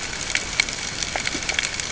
{"label": "ambient", "recorder": "HydroMoth"}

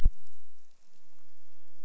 {"label": "biophony, grouper", "recorder": "SoundTrap 300"}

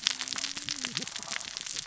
{"label": "biophony, cascading saw", "recorder": "SoundTrap 600 or HydroMoth"}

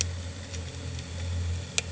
{"label": "anthrophony, boat engine", "recorder": "HydroMoth"}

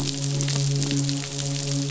{"label": "biophony, midshipman", "recorder": "SoundTrap 500"}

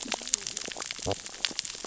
{"label": "biophony, cascading saw", "recorder": "SoundTrap 600 or HydroMoth"}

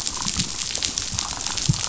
{"label": "biophony, damselfish", "recorder": "SoundTrap 500"}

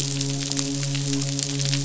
{"label": "biophony, midshipman", "recorder": "SoundTrap 500"}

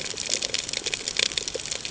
{"label": "ambient", "recorder": "HydroMoth"}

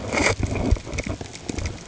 {"label": "ambient", "recorder": "HydroMoth"}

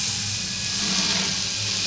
{"label": "anthrophony, boat engine", "recorder": "SoundTrap 500"}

